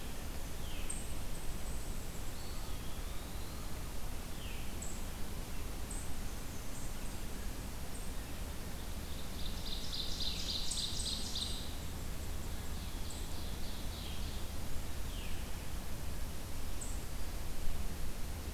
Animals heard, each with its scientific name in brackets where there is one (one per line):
Black-and-white Warbler (Mniotilta varia)
Ovenbird (Seiurus aurocapilla)
Eastern Wood-Pewee (Contopus virens)
Veery (Catharus fuscescens)